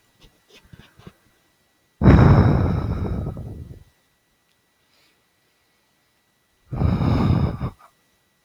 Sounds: Sigh